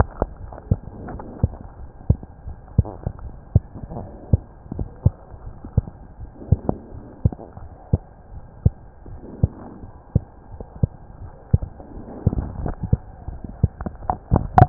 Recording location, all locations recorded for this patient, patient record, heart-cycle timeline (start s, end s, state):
mitral valve (MV)
aortic valve (AV)+pulmonary valve (PV)+tricuspid valve (TV)+mitral valve (MV)
#Age: Child
#Sex: Female
#Height: 116.0 cm
#Weight: 19.4 kg
#Pregnancy status: False
#Murmur: Present
#Murmur locations: tricuspid valve (TV)
#Most audible location: tricuspid valve (TV)
#Systolic murmur timing: Early-systolic
#Systolic murmur shape: Plateau
#Systolic murmur grading: I/VI
#Systolic murmur pitch: Low
#Systolic murmur quality: Blowing
#Diastolic murmur timing: nan
#Diastolic murmur shape: nan
#Diastolic murmur grading: nan
#Diastolic murmur pitch: nan
#Diastolic murmur quality: nan
#Outcome: Abnormal
#Campaign: 2015 screening campaign
0.00	1.76	unannotated
1.76	1.88	S1
1.88	2.06	systole
2.06	2.18	S2
2.18	2.44	diastole
2.44	2.56	S1
2.56	2.74	systole
2.74	2.90	S2
2.90	3.19	diastole
3.19	3.34	S1
3.34	3.50	systole
3.50	3.64	S2
3.64	3.92	diastole
3.92	4.08	S1
4.08	4.28	systole
4.28	4.42	S2
4.42	4.74	diastole
4.74	4.90	S1
4.90	5.02	systole
5.02	5.16	S2
5.16	5.43	diastole
5.43	5.54	S1
5.54	5.74	systole
5.74	5.86	S2
5.86	6.17	diastole
6.17	6.28	S1
6.28	6.48	systole
6.48	6.62	S2
6.62	6.89	diastole
6.89	7.02	S1
7.02	7.20	systole
7.20	7.32	S2
7.32	7.59	diastole
7.59	7.70	S1
7.70	7.89	systole
7.89	8.02	S2
8.02	8.30	diastole
8.30	8.42	S1
8.42	8.62	systole
8.62	8.76	S2
8.76	9.06	diastole
9.06	9.20	S1
9.20	9.38	systole
9.38	9.52	S2
9.52	9.82	diastole
9.82	9.94	S1
9.94	10.12	systole
10.12	10.24	S2
10.24	10.50	diastole
10.50	10.66	S1
10.66	10.80	systole
10.80	10.90	S2
10.90	11.19	diastole
11.19	11.30	S1
11.30	11.50	systole
11.50	11.64	S2
11.64	11.94	diastole
11.94	12.06	S1
12.06	12.22	systole
12.22	12.34	S2
12.34	14.69	unannotated